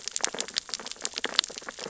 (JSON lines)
{"label": "biophony, sea urchins (Echinidae)", "recorder": "SoundTrap 600 or HydroMoth"}